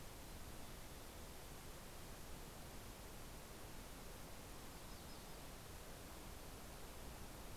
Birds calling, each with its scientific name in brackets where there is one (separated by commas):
Yellow-rumped Warbler (Setophaga coronata), Mountain Chickadee (Poecile gambeli)